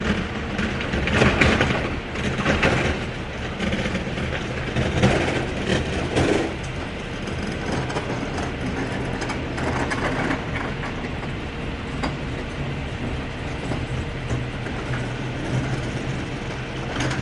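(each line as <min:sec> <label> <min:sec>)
0:00.0 A metallic rattling and thumping sound repeats. 0:12.2
0:14.6 A metallic rattling and thumping sound repeats. 0:17.2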